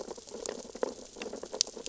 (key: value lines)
label: biophony, sea urchins (Echinidae)
recorder: SoundTrap 600 or HydroMoth